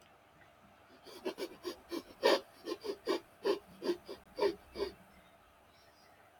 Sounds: Sniff